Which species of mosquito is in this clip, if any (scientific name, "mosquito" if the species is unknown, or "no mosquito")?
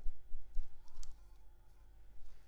Anopheles maculipalpis